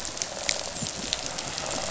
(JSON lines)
{"label": "biophony, rattle response", "recorder": "SoundTrap 500"}